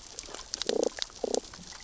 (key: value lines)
label: biophony, damselfish
recorder: SoundTrap 600 or HydroMoth